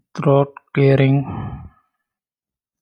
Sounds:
Throat clearing